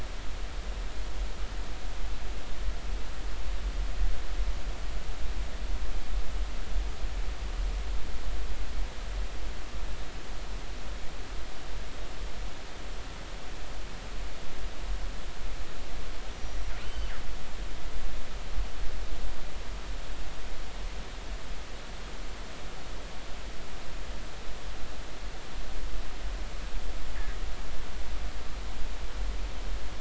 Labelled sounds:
16.8	17.1	killer whale, northern resident, 2.9 to 3.1 kHz

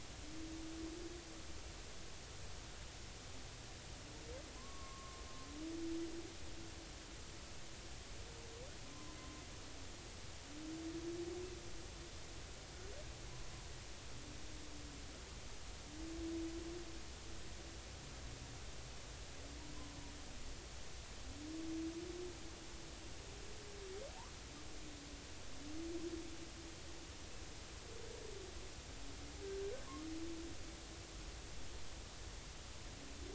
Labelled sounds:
4.5	5.2	humpback whale, 0.96 to 1.2 kHz
8.8	9.2	humpback whale, 0.93 to 1.2 kHz

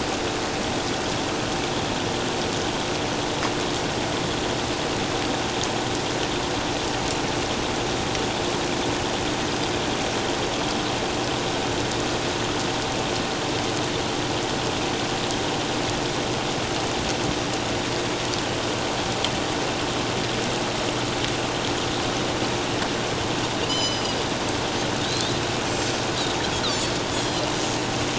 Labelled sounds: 23.7	24.2	Pacific white-sided dolphin, 2.9 to 6.2 kHz
27.1	27.4	Pacific white-sided dolphin, 7.2 to 7.9 kHz

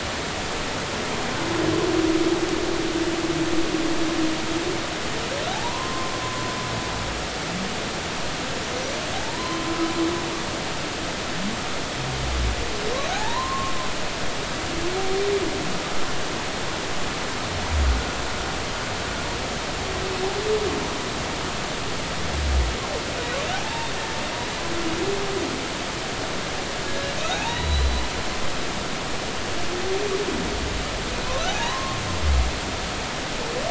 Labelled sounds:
5.5	6.1	humpback whale, 0.80 to 1.1 kHz
9.1	9.7	humpback whale, 0.80 to 1.1 kHz
13.1	13.7	humpback whale, 0.80 to 1.1 kHz
23.5	23.9	humpback whale, 0.80 to 0.99 kHz
26.9	28.0	humpback whale, 0.80 to 4.1 kHz
31.5	32.0	humpback whale, 0.80 to 1.1 kHz

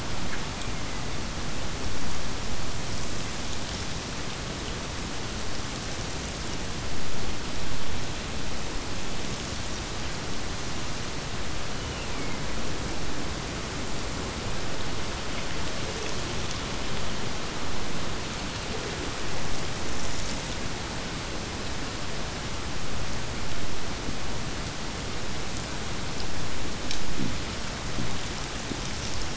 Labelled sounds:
0.4	1.3	killer whale, Bigg's (transient), Gulf of Alaska transient, 1.7 to 2.6 kHz
11.7	12.8	killer whale, Bigg's (transient), Gulf of Alaska transient, 1.7 to 3.1 kHz

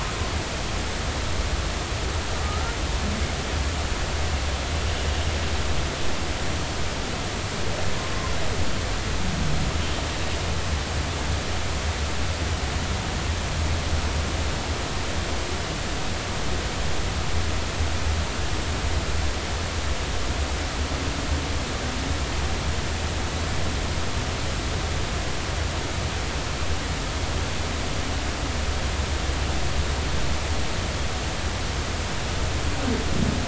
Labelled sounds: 2.4	2.8	humpback whale, 1.2 to 1.5 kHz

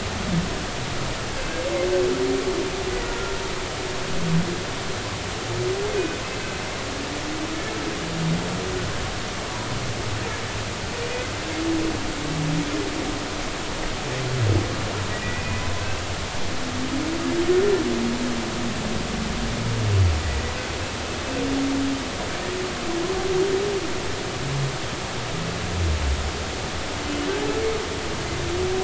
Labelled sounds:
15.1	15.6	humpback whale, 1.9 to 2.6 kHz

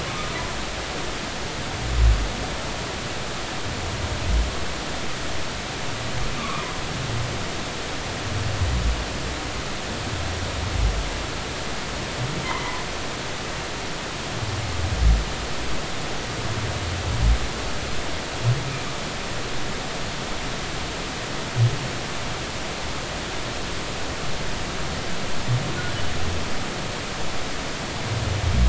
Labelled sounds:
6.4	6.7	humpback whale, 0.96 to 1.3 kHz
12.4	12.8	humpback whale, 2.0 to 2.1 kHz

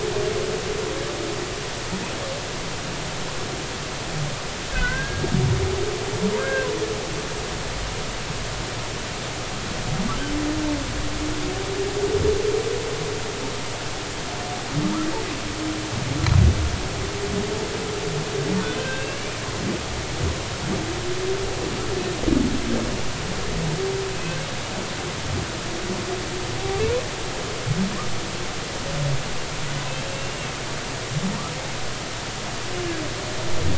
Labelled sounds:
4.7	5.3	humpback whale, 1.4 to 2.1 kHz
6.4	6.7	humpback whale, 1.4 to 1.7 kHz
18.8	19.2	humpback whale, 1.5 to 2.8 kHz
30.1	30.5	humpback whale, 2.6 to 2.8 kHz

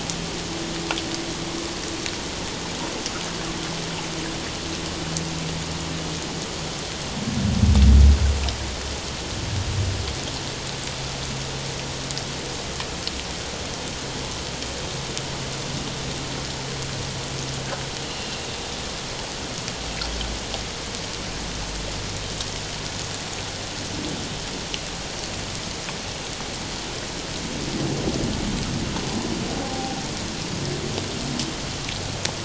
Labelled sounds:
29.6	30.0	humpback whale, 0.78 to 0.84 kHz

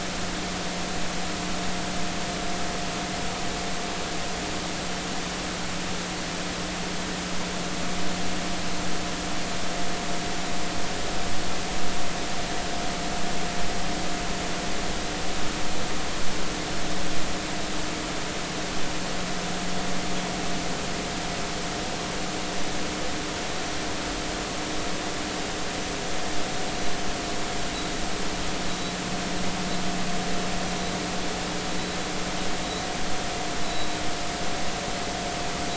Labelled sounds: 33.6	33.9	vessel noise, 3.8 to 4.0 kHz

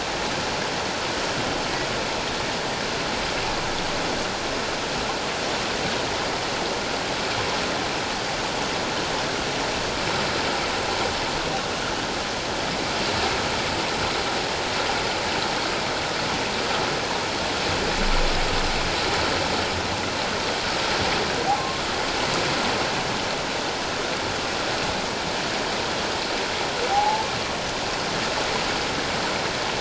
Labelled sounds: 21.5	21.8	humpback whale, 1.0 to 1.2 kHz
26.9	27.3	humpback whale, 0.78 to 0.94 kHz

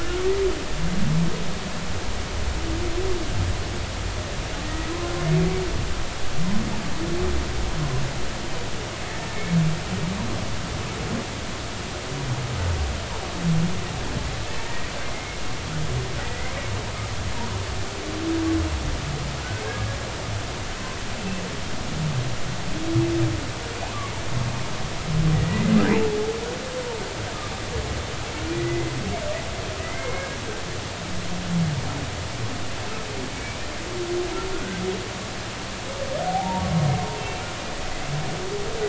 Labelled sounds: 4.6	4.9	humpback whale, 1.8 to 2.0 kHz
9.3	9.6	humpback whale, 2.1 to 2.2 kHz
14.6	15.4	humpback whale, 1.8 to 2.3 kHz
16.3	16.6	humpback whale, 1.9 to 2.3 kHz
25.3	25.8	humpback whale, 1.9 to 2.1 kHz
28.5	28.9	humpback whale, 1.9 to 2.1 kHz
29.8	30.4	humpback whale, 1.9 to 2.2 kHz
33.3	33.6	humpback whale, 2.2 to 2.3 kHz
36.2	36.6	humpback whale, 0.80 to 0.99 kHz

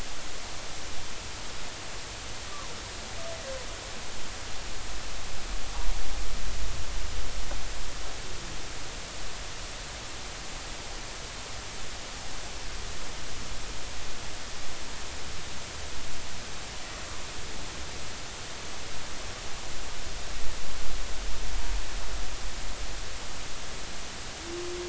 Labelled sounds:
2.5	2.7	humpback whale, 0.90 to 1.2 kHz
5.7	5.9	humpback whale, 0.80 to 0.99 kHz

